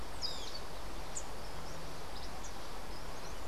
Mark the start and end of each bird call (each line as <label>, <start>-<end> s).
Great Kiskadee (Pitangus sulphuratus), 0.1-0.7 s
Cabanis's Wren (Cantorchilus modestus), 1.8-3.5 s